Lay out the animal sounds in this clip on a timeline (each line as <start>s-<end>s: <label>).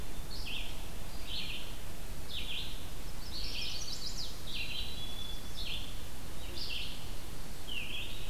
0.0s-8.3s: Red-eyed Vireo (Vireo olivaceus)
3.2s-4.4s: Chestnut-sided Warbler (Setophaga pensylvanica)
4.5s-5.7s: Black-capped Chickadee (Poecile atricapillus)